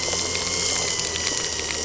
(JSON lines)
{"label": "anthrophony, boat engine", "recorder": "SoundTrap 300"}